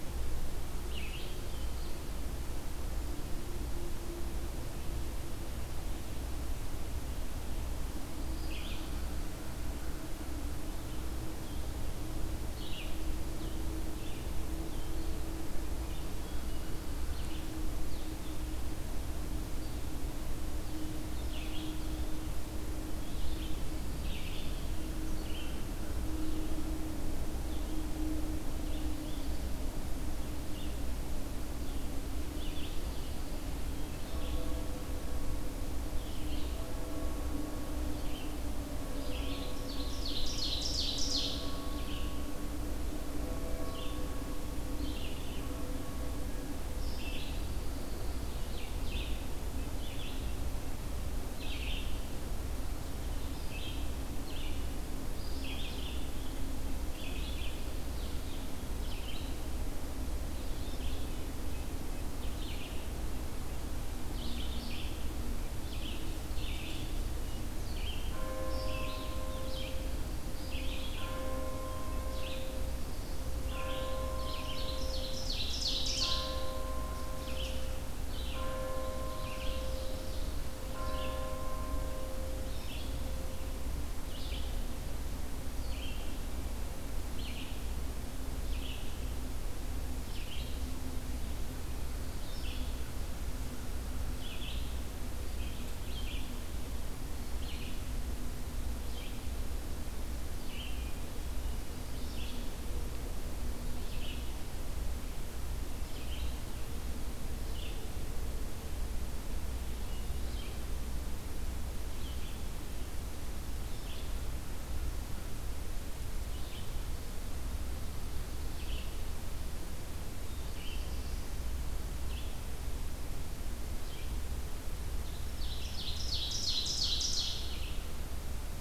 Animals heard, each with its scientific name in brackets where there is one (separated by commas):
Pine Warbler (Setophaga pinus), Blue-headed Vireo (Vireo solitarius), Red-eyed Vireo (Vireo olivaceus), Ovenbird (Seiurus aurocapilla)